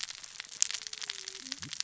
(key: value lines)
label: biophony, cascading saw
recorder: SoundTrap 600 or HydroMoth